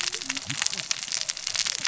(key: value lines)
label: biophony, cascading saw
recorder: SoundTrap 600 or HydroMoth